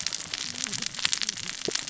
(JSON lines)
{"label": "biophony, cascading saw", "recorder": "SoundTrap 600 or HydroMoth"}